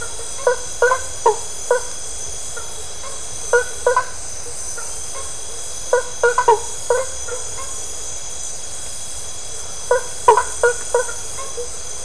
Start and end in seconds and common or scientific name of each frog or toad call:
0.0	11.7	blacksmith tree frog